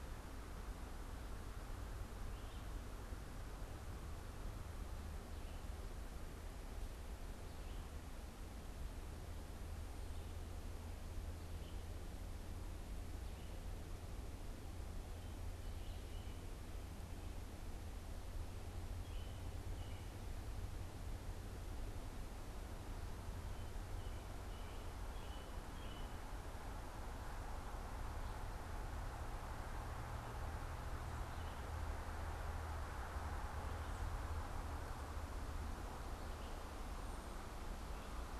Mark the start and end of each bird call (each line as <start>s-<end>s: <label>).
0.0s-20.4s: American Robin (Turdus migratorius)
23.0s-26.4s: American Robin (Turdus migratorius)
31.1s-38.4s: Red-eyed Vireo (Vireo olivaceus)